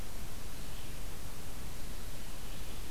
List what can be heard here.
forest ambience